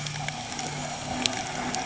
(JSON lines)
{"label": "anthrophony, boat engine", "recorder": "HydroMoth"}